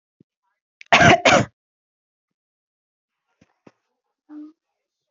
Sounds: Cough